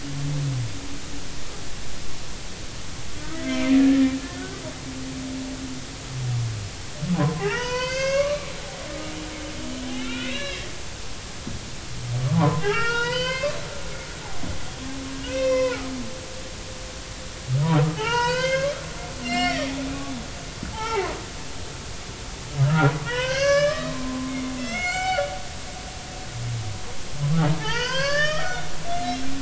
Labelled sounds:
4.3	4.6	humpback whale, 1.4 to 1.6 kHz
7.1	8.5	humpback whale, 0.80 to 6.7 kHz
8.9	10.7	humpback whale, 1.3 to 4.0 kHz
12.2	13.6	humpback whale, 0.80 to 5.2 kHz
13.9	15.8	humpback whale, 0.93 to 5.9 kHz
18.0	18.7	humpback whale, 0.80 to 5.4 kHz
19.2	19.7	humpback whale, 1.8 to 5.8 kHz
20.7	21.1	humpback whale, 0.80 to 3.2 kHz
22.6	25.3	humpback whale, 0.80 to 7.6 kHz
27.6	29.2	humpback whale, 0.80 to 5.6 kHz

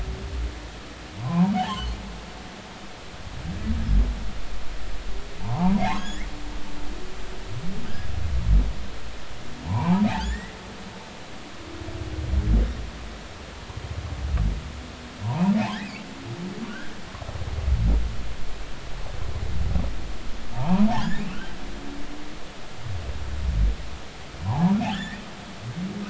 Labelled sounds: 1.2	1.9	humpback whale, 0.80 to 3.4 kHz
5.4	6.3	humpback whale, 0.80 to 7.2 kHz
9.7	10.6	humpback whale, 0.80 to 2.4 kHz
15.2	16.1	humpback whale, 0.80 to 2.8 kHz
20.5	21.6	humpback whale, 0.80 to 3.2 kHz
24.4	25.2	humpback whale, 0.80 to 2.0 kHz

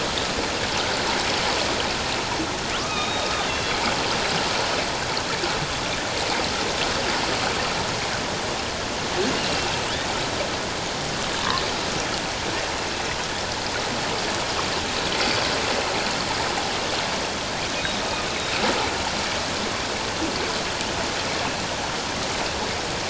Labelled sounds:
2.8	3.8	killer whale, northern resident, A clan, AB subclan, H01 pod, 1.0 to 3.8 kHz
9.4	9.7	killer whale, northern resident, A clan, AB subclan, H01 pod, 2.6 to 2.9 kHz
17.8	18.0	killer whale, northern resident, A clan, AB subclan, H01 pod, 3.5 to 4.0 kHz
18.3	18.5	killer whale, northern resident, A clan, AB subclan, H01 pod, 3.7 to 4.1 kHz

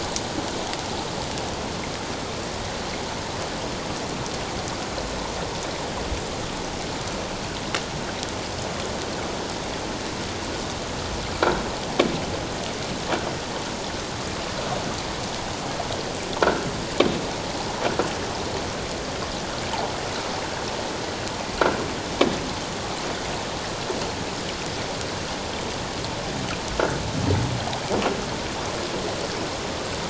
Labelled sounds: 11.4	11.6	croaking sound likely from a nearby submerged object, 1.3 to 1.6 kHz

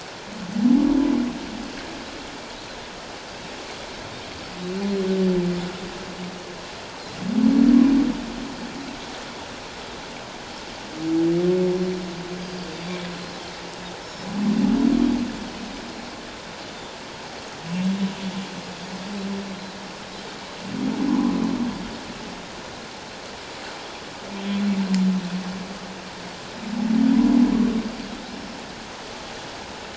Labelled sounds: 12.4	13.0	Pacific white-sided dolphin, 3.4 to 5.0 kHz
14.0	14.3	Pacific white-sided dolphin, 5.1 to 5.4 kHz
21.1	21.4	humpback whale, 0.84 to 1.2 kHz
28.3	28.6	Pacific white-sided dolphin, 5.2 to 5.4 kHz

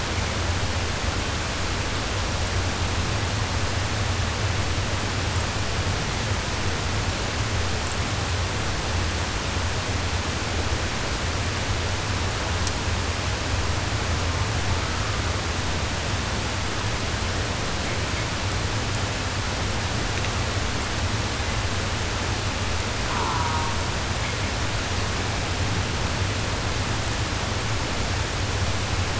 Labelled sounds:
14.1	15.3	killer whale, southern resident, 0.36 to 1.7 kHz
23.0	24.0	killer whale, southern resident, 0.49 to 1.9 kHz

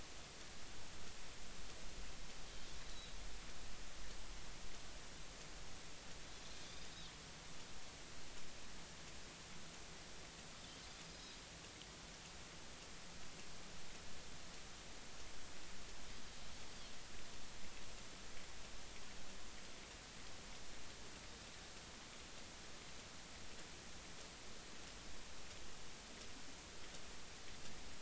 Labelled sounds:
6.6	6.9	Pacific white-sided dolphin, 4.6 to 5.0 kHz

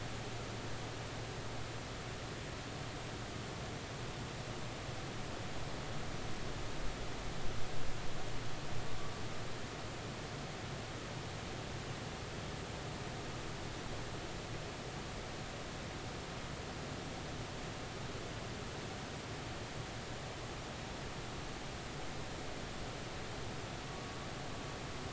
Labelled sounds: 23.9	24.2	humpback whale, 1.1 to 1.2 kHz

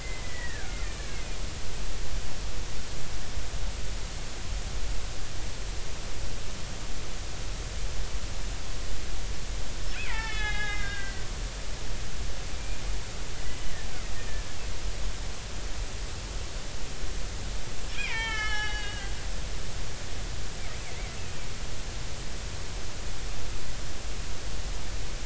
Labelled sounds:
0.0	1.4	killer whale, Bigg's (transient), 1.3 to 2.8 kHz
9.9	11.2	killer whale, Bigg's (transient), 0.80 to 3.9 kHz
12.6	12.8	killer whale, Bigg's (transient), 2.3 to 2.5 kHz
17.9	19.1	killer whale, Bigg's (transient), 0.80 to 5.7 kHz
20.9	21.2	killer whale, Bigg's (transient), 2.0 to 2.3 kHz

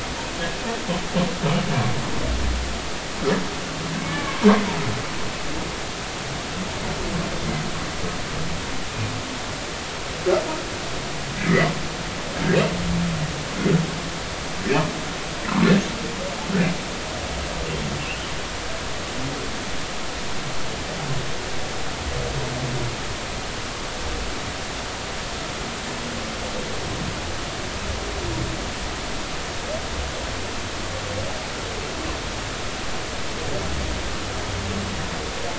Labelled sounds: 4.0	4.4	humpback whale, 1.0 to 2.4 kHz
11.4	11.7	humpback whale, 1.6 to 2.1 kHz

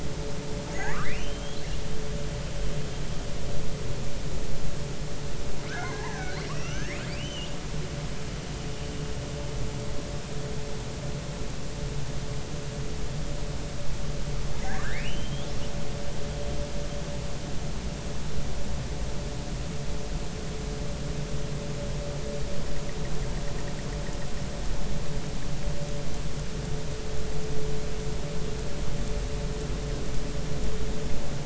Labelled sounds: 0.7	1.6	killer whale, northern resident, R clan, call N32i, 1.1 to 6.9 kHz
5.7	6.4	killer whale, northern resident, R clan, call N33, 0.80 to 6.2 kHz
6.5	8.0	killer whale, northern resident, R clan, call N32i, 1.2 to 6.6 kHz
14.7	15.5	killer whale, northern resident, R clan, call N32i, 1.4 to 3.4 kHz

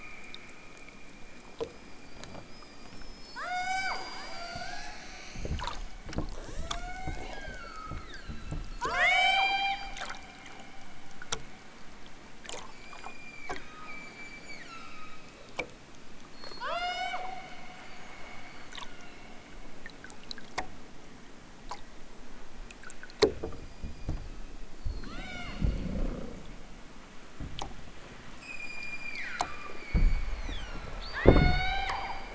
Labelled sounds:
3.3	4.0	killer whale, southern Alaska resident, 0.32 to 8.0 kHz
4.3	4.9	killer whale, southern Alaska resident, 0.46 to 8.0 kHz
6.3	9.9	killer whale, southern Alaska resident, 0.23 to 8.0 kHz
12.6	15.5	killer whale, southern Alaska resident, 0.87 to 7.7 kHz
16.3	17.3	killer whale, southern Alaska resident, 0.32 to 8.0 kHz
17.6	19.6	killer whale, southern Alaska resident, 2.5 to 8.0 kHz
23.3	24.6	killer whale, southern Alaska resident, 0.83 to 7.6 kHz
25.0	25.6	killer whale, southern Alaska resident, 0.41 to 8.0 kHz
28.2	32.2	killer whale, southern Alaska resident, 0.41 to 8.0 kHz

